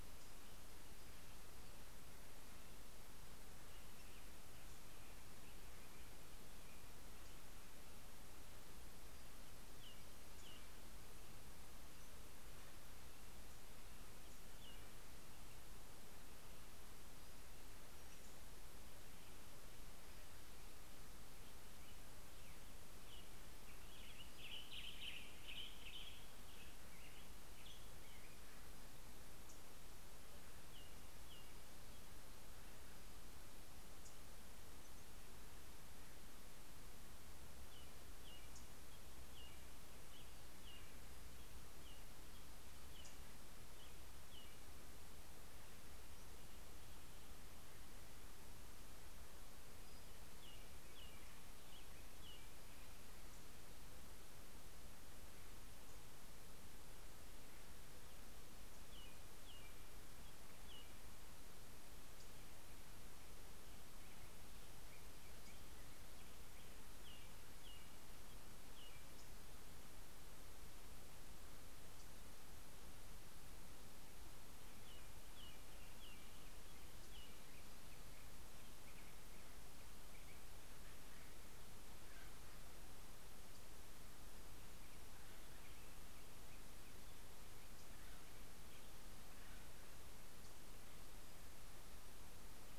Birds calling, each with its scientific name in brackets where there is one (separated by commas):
Black-headed Grosbeak (Pheucticus melanocephalus), Acorn Woodpecker (Melanerpes formicivorus), Brown-headed Cowbird (Molothrus ater), American Robin (Turdus migratorius), Western Tanager (Piranga ludoviciana), Black-throated Gray Warbler (Setophaga nigrescens)